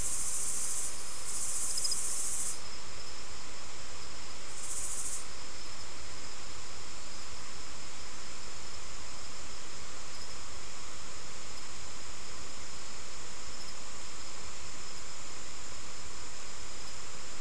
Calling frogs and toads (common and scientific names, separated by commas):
none